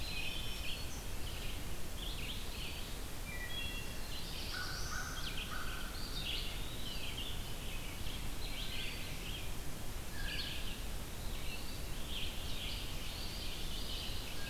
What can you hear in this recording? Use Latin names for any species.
Setophaga virens, Vireo olivaceus, Hylocichla mustelina, Contopus virens, Setophaga caerulescens, Corvus brachyrhynchos, Cyanocitta cristata, Seiurus aurocapilla